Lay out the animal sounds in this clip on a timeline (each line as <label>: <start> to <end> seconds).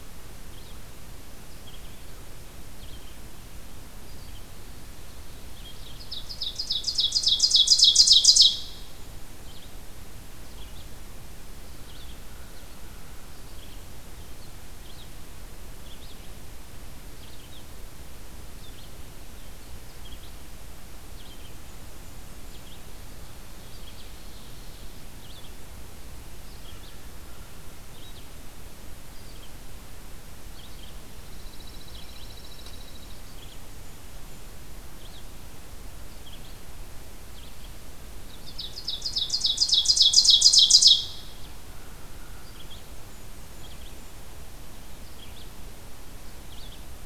Red-eyed Vireo (Vireo olivaceus): 0.0 to 6.0 seconds
Ovenbird (Seiurus aurocapilla): 5.5 to 8.7 seconds
Red-eyed Vireo (Vireo olivaceus): 8.5 to 47.1 seconds
Ovenbird (Seiurus aurocapilla): 23.4 to 25.1 seconds
Pine Warbler (Setophaga pinus): 30.9 to 33.3 seconds
Ovenbird (Seiurus aurocapilla): 38.0 to 41.5 seconds
American Crow (Corvus brachyrhynchos): 41.6 to 42.7 seconds
Blackburnian Warbler (Setophaga fusca): 42.6 to 44.3 seconds